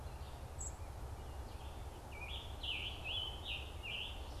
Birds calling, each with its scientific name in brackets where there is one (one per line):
Scarlet Tanager (Piranga olivacea)
unidentified bird
Red-eyed Vireo (Vireo olivaceus)